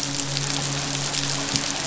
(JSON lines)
{"label": "biophony, midshipman", "recorder": "SoundTrap 500"}